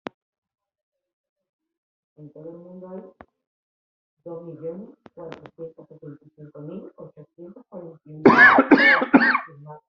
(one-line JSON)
{"expert_labels": [{"quality": "ok", "cough_type": "dry", "dyspnea": false, "wheezing": false, "stridor": false, "choking": false, "congestion": false, "nothing": true, "diagnosis": "COVID-19", "severity": "mild"}], "age": 57, "gender": "male", "respiratory_condition": true, "fever_muscle_pain": false, "status": "symptomatic"}